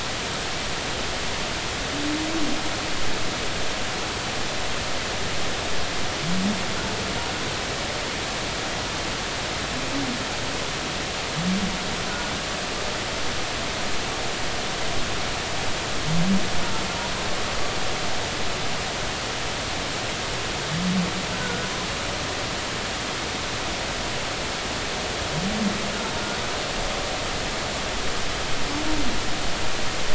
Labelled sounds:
12.1	12.3	humpback whale, 1.4 to 1.5 kHz
21.3	21.7	humpback whale, 1.4 to 1.6 kHz

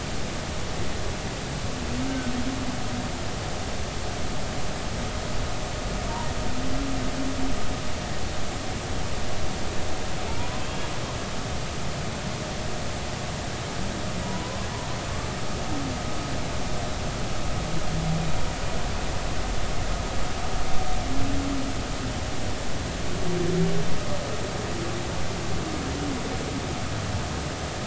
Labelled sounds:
2.1	2.3	humpback whale, 1.4 to 1.6 kHz
10.4	10.9	humpback whale, 0.90 to 2.8 kHz
14.2	14.7	humpback whale, 0.93 to 1.2 kHz

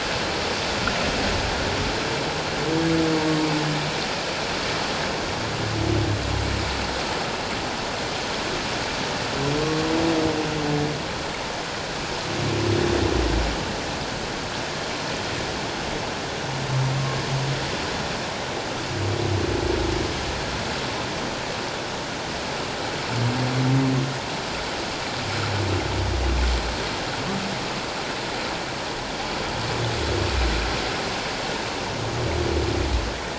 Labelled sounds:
9.6	9.9	humpback whale, 1.1 to 1.2 kHz

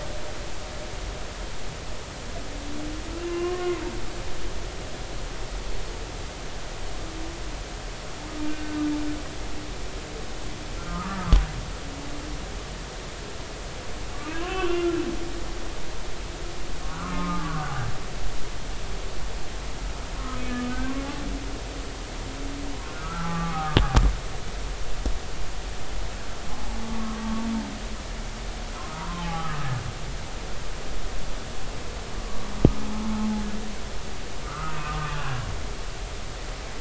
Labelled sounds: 3.2	3.8	humpback whale, 0.99 to 2.9 kHz
8.5	8.8	humpback whale, 1.5 to 1.6 kHz
10.8	11.4	humpback whale, 0.99 to 1.4 kHz
14.1	15.0	humpback whale, 0.99 to 3.1 kHz
16.9	17.8	humpback whale, 0.93 to 1.5 kHz
23.0	23.8	humpback whale, 0.80 to 1.4 kHz
26.8	27.4	humpback whale, 1.0 to 1.2 kHz
28.9	29.7	humpback whale, 0.80 to 1.4 kHz
32.2	32.4	humpback whale, 1.1 to 1.2 kHz
34.4	35.5	humpback whale, 1.0 to 1.7 kHz

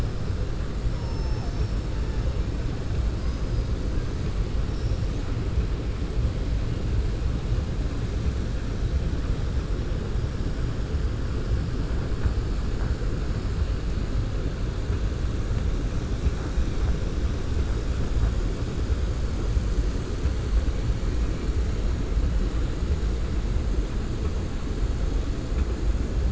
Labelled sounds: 0.9	1.8	killer whale, southern resident, 5.3 to 6.8 kHz

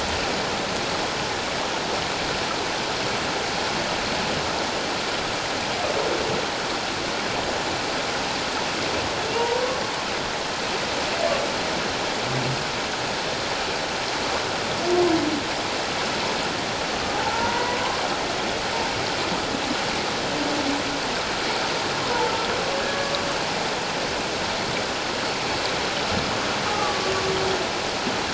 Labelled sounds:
9.3	9.6	humpback whale, 0.88 to 1.0 kHz
17.2	17.8	humpback whale, 0.81 to 1.5 kHz
22.0	23.2	humpback whale, 0.84 to 1.8 kHz
26.7	27.1	humpback whale, 1.1 to 1.3 kHz

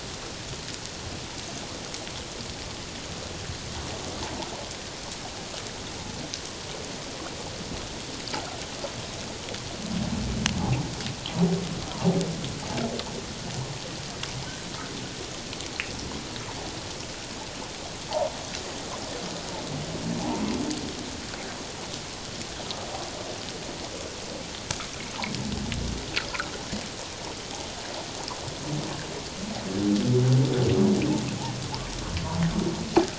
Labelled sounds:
11.9	12.2	humpback whale, 0.78 to 1.1 kHz

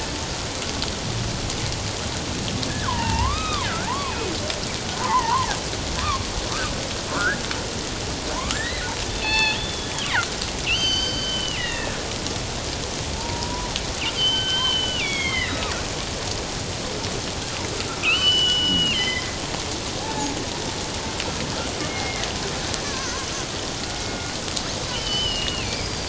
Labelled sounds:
2.7	4.3	killer whale, northern resident, G clan, 0.78 to 3.9 kHz
5.0	5.5	killer whale, northern resident, G clan, 0.81 to 2.2 kHz
7.1	7.4	killer whale, northern resident, G clan, 1.0 to 1.8 kHz
8.3	9.9	killer whale, northern resident, G clan, 0.78 to 4.4 kHz
10.7	12.0	killer whale, northern resident, G clan, 1.5 to 6.3 kHz
13.2	13.7	killer whale, northern resident, G clan, 0.84 to 1.0 kHz
14.1	15.7	killer whale, northern resident, G clan, 1.1 to 4.8 kHz
18.0	19.3	killer whale, northern resident, G clan, 1.2 to 5.2 kHz
20.0	20.3	killer whale, northern resident, G clan, 0.78 to 1.8 kHz
21.8	23.3	killer whale, northern resident, G clan, 0.97 to 2.2 kHz
24.1	24.4	killer whale, northern resident, G clan, 1.4 to 1.5 kHz
24.9	26.0	killer whale, northern resident, G clan, 2.2 to 5.2 kHz

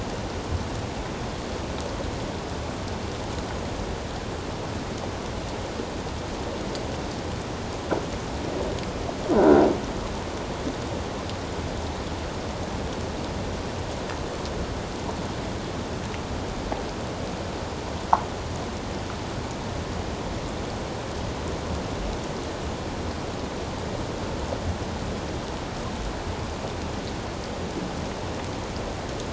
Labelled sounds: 9.3	9.7	croaking sound likely from a nearby submerged object, 1.3 to 1.6 kHz

